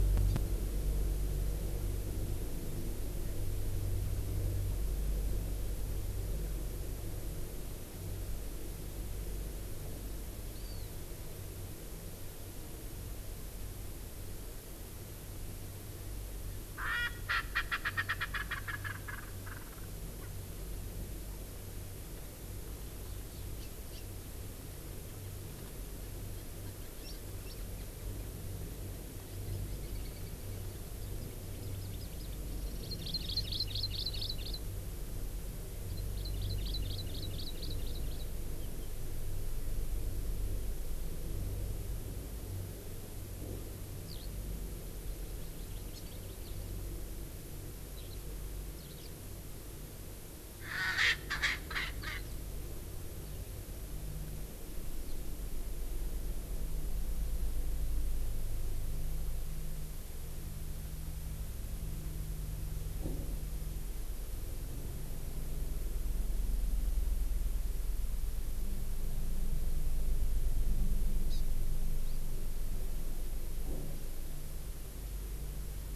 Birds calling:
Hawaii Amakihi (Chlorodrepanis virens), Eurasian Skylark (Alauda arvensis), Erckel's Francolin (Pternistis erckelii), Warbling White-eye (Zosterops japonicus)

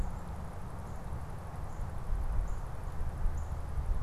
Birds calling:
American Crow (Corvus brachyrhynchos)

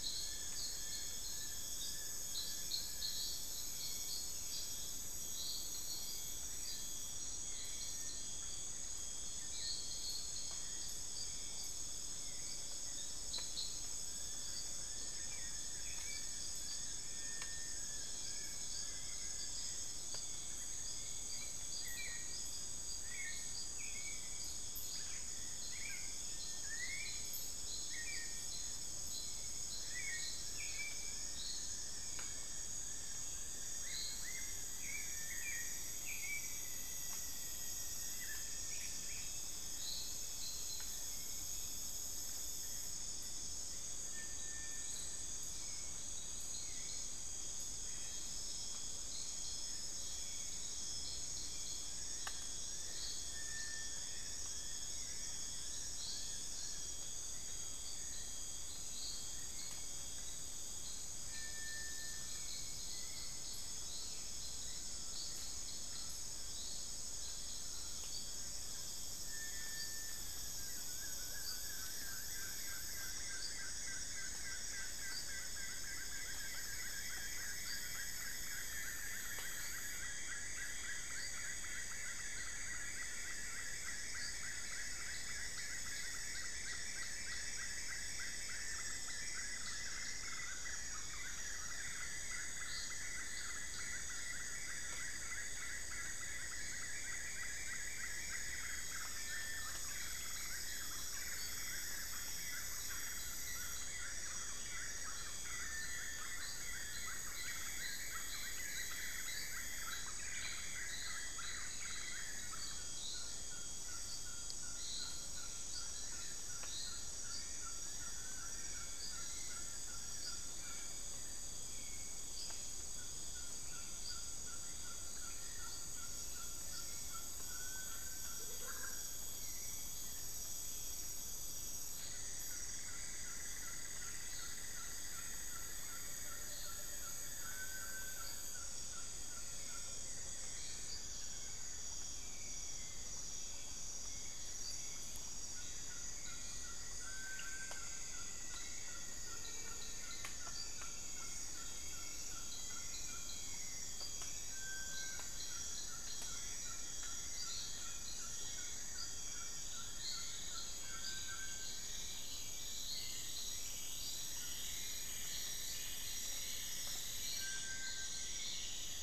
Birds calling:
Rufous-fronted Antthrush (Formicarius rufifrons), Amazonian Barred-Woodcreeper (Dendrocolaptes certhia), Cinereous Tinamou (Crypturellus cinereus), Ferruginous Pygmy-Owl (Glaucidium brasilianum), Black-faced Antthrush (Formicarius analis), Little Tinamou (Crypturellus soui), Long-billed Woodcreeper (Nasica longirostris), Thrush-like Wren (Campylorhynchus turdinus), Amazonian Motmot (Momotus momota), Black-fronted Nunbird (Monasa nigrifrons), Cinnamon-throated Woodcreeper (Dendrexetastes rufigula), Black-billed Thrush (Turdus ignobilis), unidentified bird

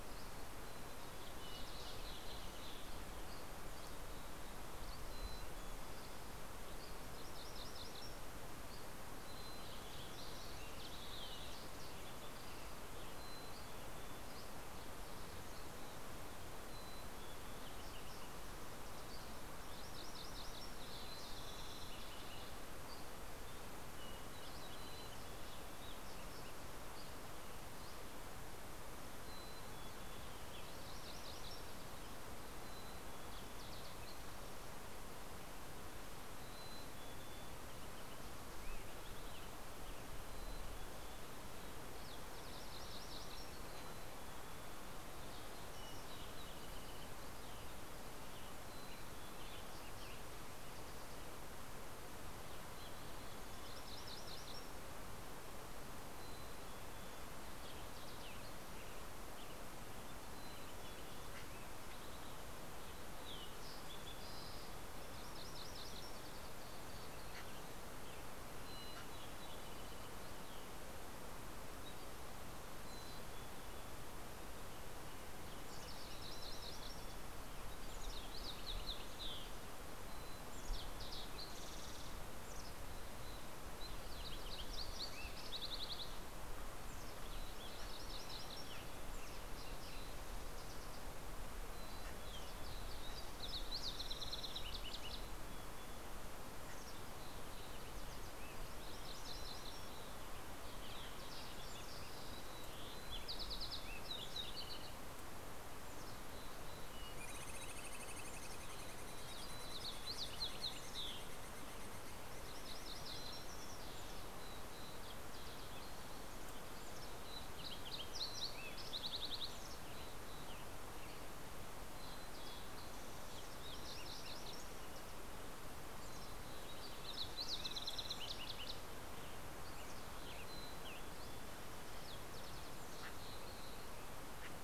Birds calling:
Green-tailed Towhee (Pipilo chlorurus), Mountain Chickadee (Poecile gambeli), Common Raven (Corvus corax), MacGillivray's Warbler (Geothlypis tolmiei), Dusky Flycatcher (Empidonax oberholseri), White-crowned Sparrow (Zonotrichia leucophrys), Spotted Towhee (Pipilo maculatus), Fox Sparrow (Passerella iliaca), Western Tanager (Piranga ludoviciana)

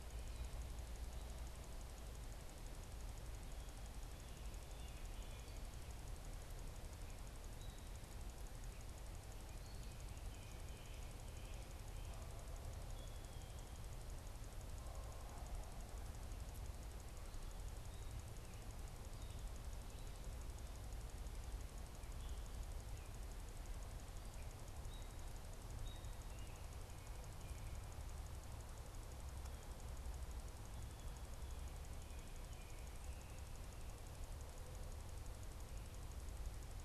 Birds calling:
Gray Catbird (Dumetella carolinensis), Blue Jay (Cyanocitta cristata)

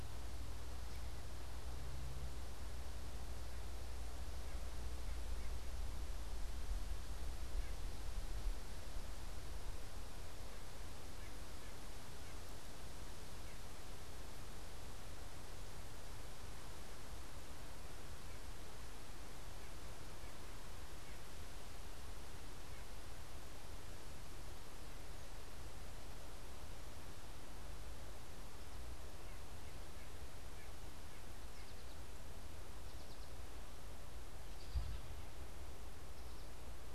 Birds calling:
White-breasted Nuthatch (Sitta carolinensis), American Goldfinch (Spinus tristis)

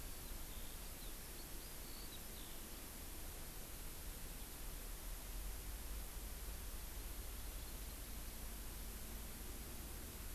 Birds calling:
Eurasian Skylark (Alauda arvensis)

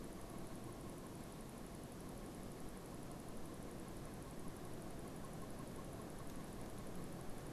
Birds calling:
Pileated Woodpecker (Dryocopus pileatus)

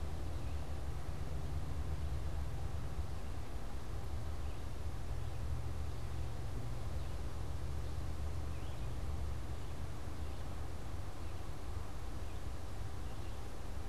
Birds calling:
unidentified bird

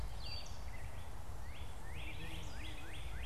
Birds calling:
Red-eyed Vireo (Vireo olivaceus), Gray Catbird (Dumetella carolinensis), Northern Cardinal (Cardinalis cardinalis)

